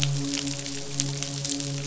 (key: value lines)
label: biophony, midshipman
recorder: SoundTrap 500